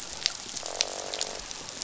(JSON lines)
{"label": "biophony, croak", "recorder": "SoundTrap 500"}